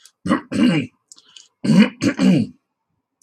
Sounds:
Throat clearing